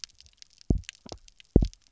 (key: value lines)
label: biophony, double pulse
recorder: SoundTrap 300